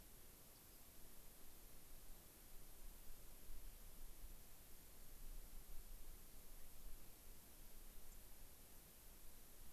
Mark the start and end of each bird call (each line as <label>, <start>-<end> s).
Rock Wren (Salpinctes obsoletus), 0.5-0.8 s
White-crowned Sparrow (Zonotrichia leucophrys), 8.1-8.2 s